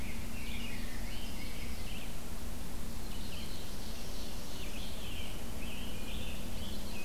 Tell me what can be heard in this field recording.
Rose-breasted Grosbeak, Ovenbird, Red-eyed Vireo, Scarlet Tanager